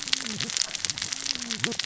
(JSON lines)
{"label": "biophony, cascading saw", "recorder": "SoundTrap 600 or HydroMoth"}